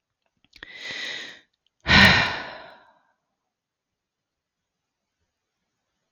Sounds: Sigh